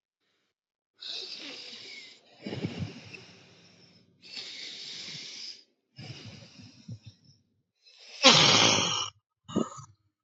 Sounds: Sniff